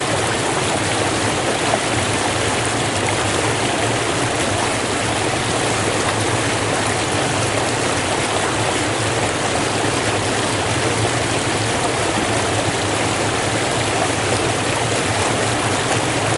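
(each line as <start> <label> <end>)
0.0 A stream of water flowing. 16.4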